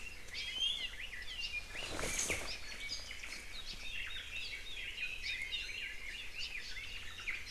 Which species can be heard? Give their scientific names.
Drepanis coccinea, Myadestes obscurus, Leiothrix lutea